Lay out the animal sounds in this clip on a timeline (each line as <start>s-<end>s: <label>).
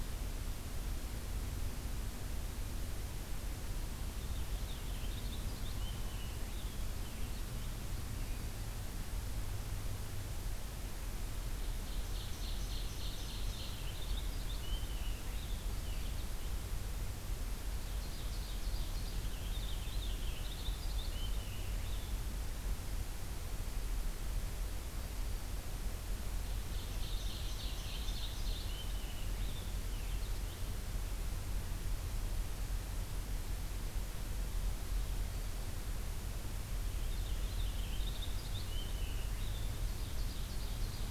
3.9s-8.7s: Purple Finch (Haemorhous purpureus)
11.6s-13.7s: Ovenbird (Seiurus aurocapilla)
13.0s-16.8s: Purple Finch (Haemorhous purpureus)
17.6s-19.3s: Ovenbird (Seiurus aurocapilla)
19.0s-22.2s: Purple Finch (Haemorhous purpureus)
26.5s-28.7s: Ovenbird (Seiurus aurocapilla)
27.8s-30.8s: Purple Finch (Haemorhous purpureus)
36.6s-39.9s: Purple Finch (Haemorhous purpureus)
39.6s-41.1s: Ovenbird (Seiurus aurocapilla)